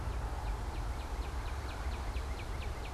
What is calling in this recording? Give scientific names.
Cardinalis cardinalis